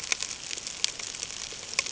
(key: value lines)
label: ambient
recorder: HydroMoth